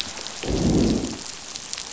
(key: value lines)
label: biophony, growl
recorder: SoundTrap 500